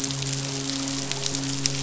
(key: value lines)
label: biophony, midshipman
recorder: SoundTrap 500